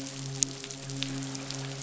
{"label": "biophony, midshipman", "recorder": "SoundTrap 500"}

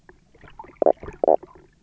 {"label": "biophony, knock croak", "recorder": "SoundTrap 300"}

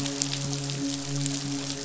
{"label": "biophony, midshipman", "recorder": "SoundTrap 500"}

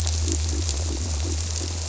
{"label": "biophony", "recorder": "SoundTrap 300"}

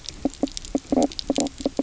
{"label": "biophony, knock croak", "recorder": "SoundTrap 300"}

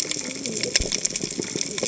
{"label": "biophony, cascading saw", "recorder": "HydroMoth"}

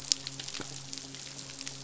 {"label": "biophony, midshipman", "recorder": "SoundTrap 500"}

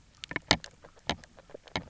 {"label": "biophony, grazing", "recorder": "SoundTrap 300"}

